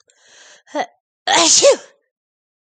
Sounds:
Sneeze